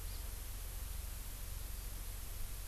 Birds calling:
Hawaii Amakihi (Chlorodrepanis virens)

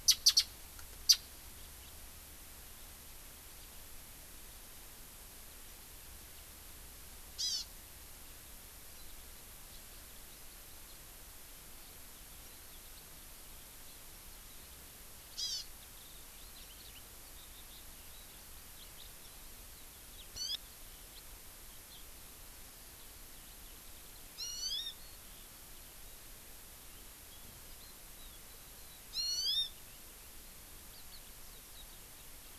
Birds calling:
Japanese Bush Warbler (Horornis diphone), Eurasian Skylark (Alauda arvensis), Hawaii Amakihi (Chlorodrepanis virens)

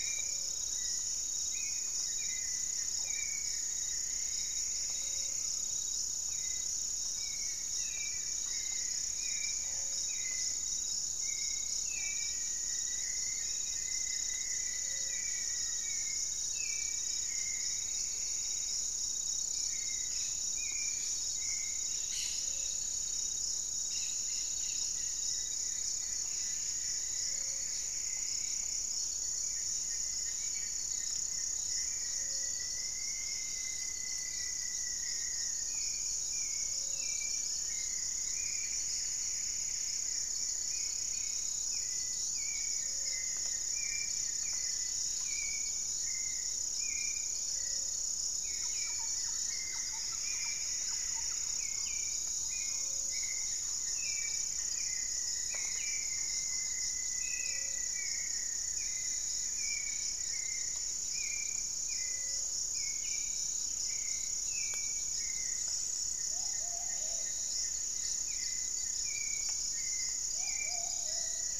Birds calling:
Buff-breasted Wren (Cantorchilus leucotis), Plumbeous Pigeon (Patagioenas plumbea), Hauxwell's Thrush (Turdus hauxwelli), Gray-fronted Dove (Leptotila rufaxilla), Goeldi's Antbird (Akletos goeldii), unidentified bird, Rufous-fronted Antthrush (Formicarius rufifrons), Thrush-like Wren (Campylorhynchus turdinus), Plumbeous Antbird (Myrmelastes hyperythrus)

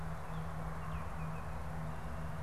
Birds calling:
Baltimore Oriole (Icterus galbula)

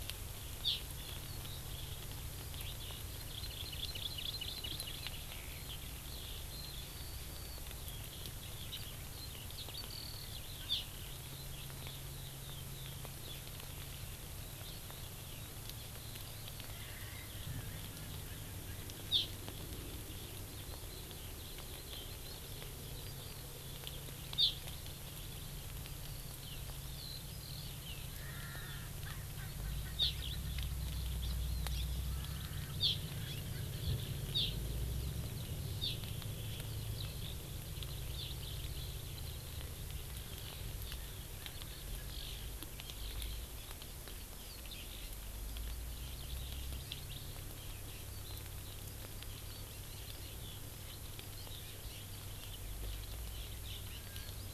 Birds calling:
Hawaii Amakihi (Chlorodrepanis virens), Erckel's Francolin (Pternistis erckelii), Eurasian Skylark (Alauda arvensis)

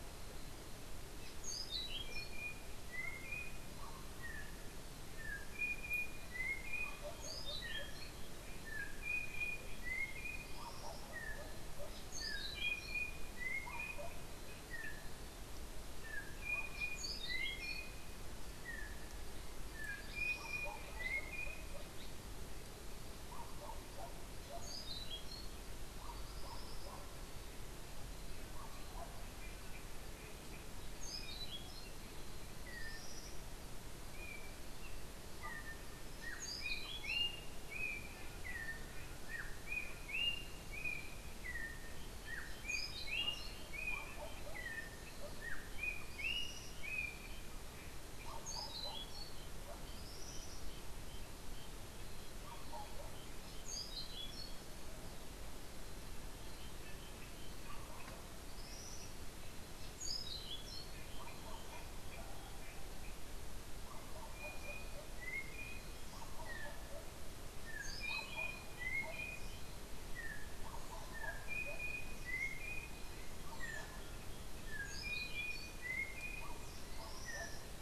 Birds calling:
Tropical Kingbird (Tyrannus melancholicus), Orange-billed Nightingale-Thrush (Catharus aurantiirostris), Yellow-backed Oriole (Icterus chrysater)

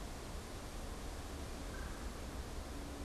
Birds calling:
Red-bellied Woodpecker (Melanerpes carolinus)

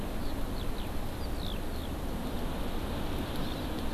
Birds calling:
Eurasian Skylark (Alauda arvensis), Hawaii Amakihi (Chlorodrepanis virens)

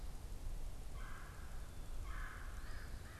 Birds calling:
Red-bellied Woodpecker (Melanerpes carolinus), Eastern Phoebe (Sayornis phoebe), American Crow (Corvus brachyrhynchos)

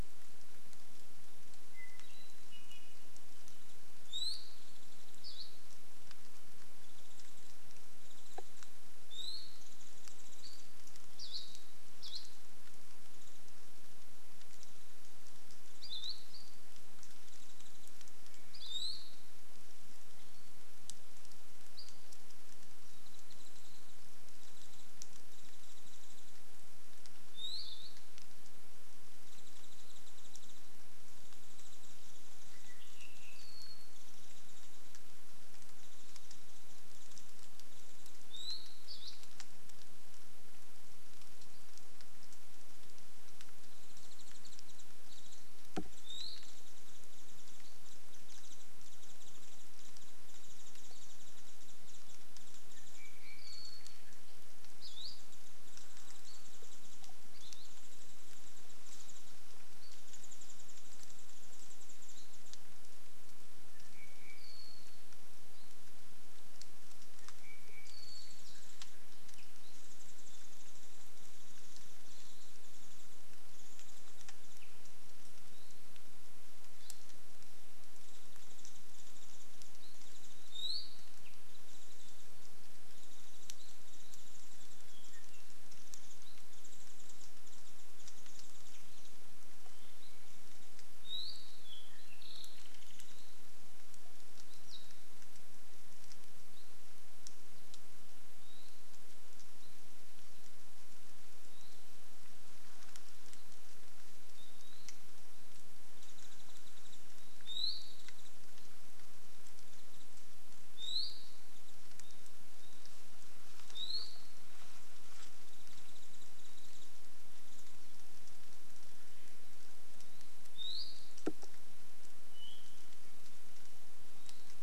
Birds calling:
Iiwi (Drepanis coccinea), Hawaii Akepa (Loxops coccineus), Warbling White-eye (Zosterops japonicus), Apapane (Himatione sanguinea)

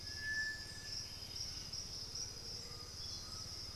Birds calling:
Undulated Tinamou (Crypturellus undulatus), Piratic Flycatcher (Legatus leucophaius), White-winged Becard (Pachyramphus polychopterus)

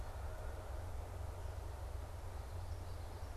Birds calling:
Common Yellowthroat (Geothlypis trichas)

